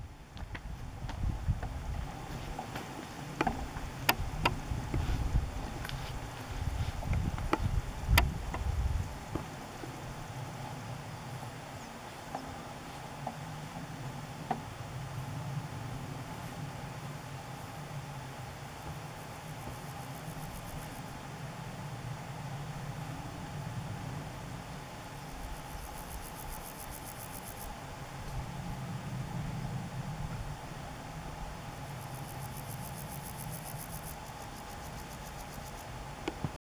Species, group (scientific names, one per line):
Pseudochorthippus parallelus
Orthoptera